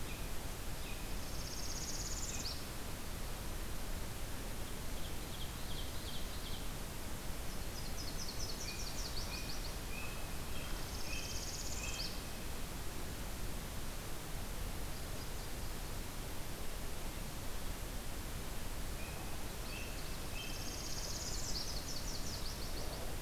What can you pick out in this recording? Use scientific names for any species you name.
Turdus migratorius, Setophaga americana, Seiurus aurocapilla, Leiothlypis ruficapilla